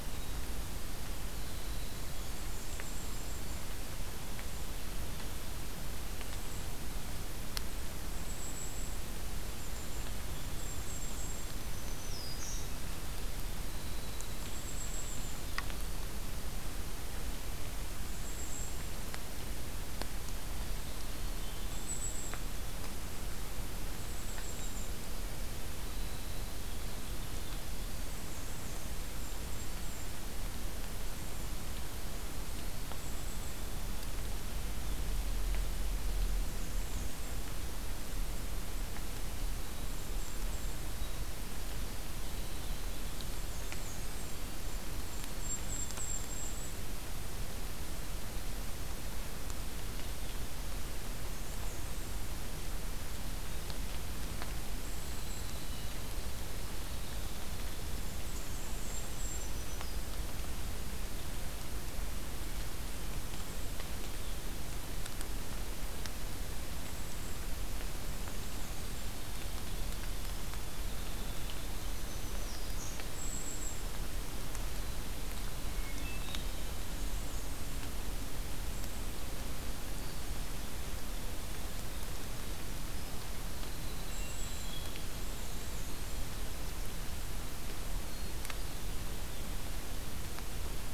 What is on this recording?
Winter Wren, Black-and-white Warbler, Golden-crowned Kinglet, Black-throated Green Warbler, White-throated Sparrow, Hermit Thrush